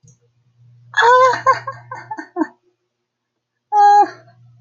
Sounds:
Laughter